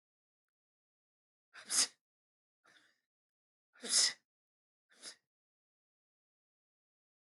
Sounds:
Sneeze